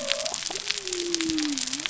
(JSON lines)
{"label": "biophony", "recorder": "SoundTrap 300"}